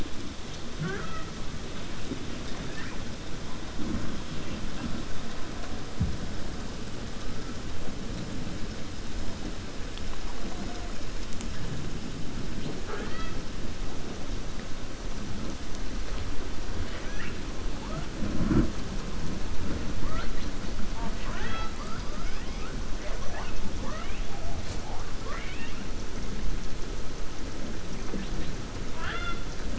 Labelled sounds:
16.8	17.4	killer whale, 1.2 to 3.6 kHz
20.9	22.0	killer whale, 0.45 to 5.3 kHz
25.1	25.8	killer whale, 0.51 to 3.8 kHz
28.8	29.4	killer whale, 0.65 to 4.7 kHz

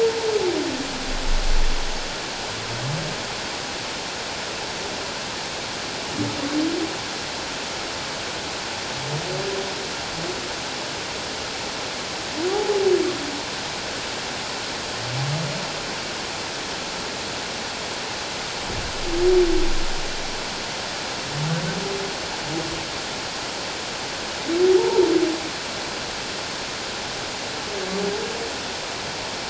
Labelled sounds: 12.5	12.8	humpback whale, 0.78 to 0.91 kHz
24.8	25.1	humpback whale, 0.84 to 1.0 kHz

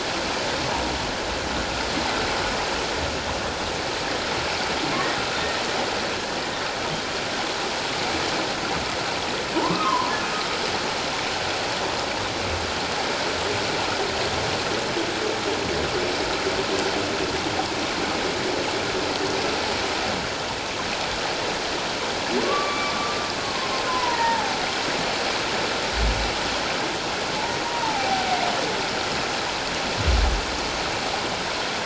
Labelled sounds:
9.6	10.1	humpback whale, 0.88 to 1.3 kHz
22.4	24.6	humpback whale, 0.78 to 2.4 kHz
27.6	28.4	humpback whale, 0.78 to 1.0 kHz

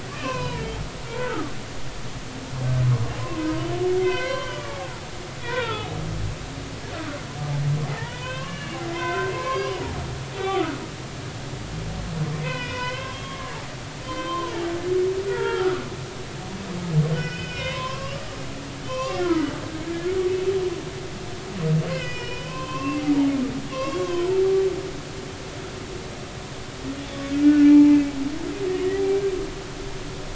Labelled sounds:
0.1	0.7	humpback whale, 0.86 to 4.1 kHz
1.2	1.5	humpback whale, 1.1 to 1.6 kHz
2.9	3.5	humpback whale, 0.96 to 1.1 kHz
4.0	6.0	humpback whale, 0.80 to 4.2 kHz
7.9	9.8	humpback whale, 0.80 to 4.8 kHz
10.3	10.9	humpback whale, 1.1 to 3.6 kHz
12.4	13.5	humpback whale, 0.93 to 5.1 kHz
14.0	14.5	humpback whale, 0.93 to 3.7 kHz
15.3	15.8	humpback whale, 0.80 to 3.3 kHz
17.1	18.3	humpback whale, 0.96 to 5.4 kHz
18.8	19.5	humpback whale, 0.96 to 3.4 kHz
21.9	23.0	humpback whale, 0.90 to 5.5 kHz
23.7	24.0	humpback whale, 0.99 to 3.5 kHz
27.3	28.0	humpback whale, 0.80 to 1.8 kHz

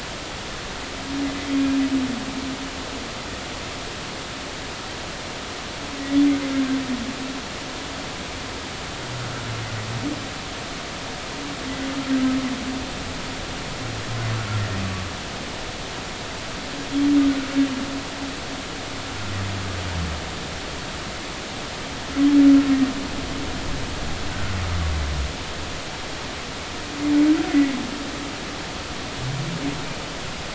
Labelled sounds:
1.5	1.8	humpback whale, 2.4 to 2.5 kHz
24.3	24.6	humpback whale, 1.3 to 1.6 kHz

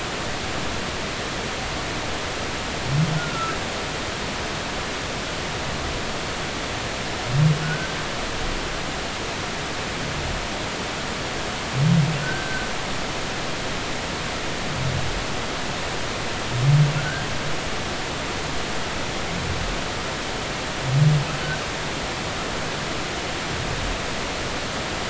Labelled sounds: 3.2	3.6	humpback whale, 1.2 to 1.5 kHz
7.6	8.0	humpback whale, 1.4 to 1.6 kHz
12.2	12.7	humpback whale, 1.4 to 1.6 kHz
17.0	17.3	humpback whale, 1.3 to 1.7 kHz

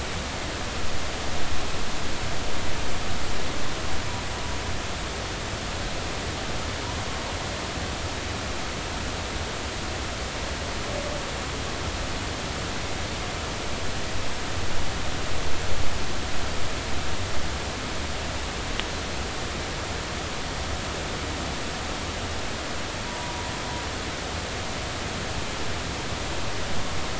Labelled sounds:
23.1	23.4	humpback whale, 0.93 to 1.0 kHz

